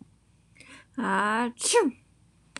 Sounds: Sneeze